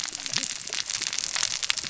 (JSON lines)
{"label": "biophony, cascading saw", "recorder": "SoundTrap 600 or HydroMoth"}